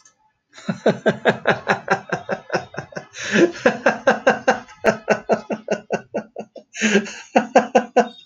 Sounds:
Laughter